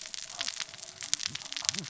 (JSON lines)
{"label": "biophony, cascading saw", "recorder": "SoundTrap 600 or HydroMoth"}